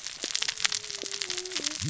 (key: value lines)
label: biophony, cascading saw
recorder: SoundTrap 600 or HydroMoth